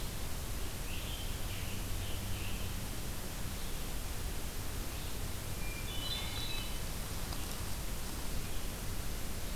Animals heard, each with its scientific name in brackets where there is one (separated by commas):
Scarlet Tanager (Piranga olivacea), Hermit Thrush (Catharus guttatus)